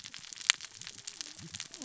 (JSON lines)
{"label": "biophony, cascading saw", "recorder": "SoundTrap 600 or HydroMoth"}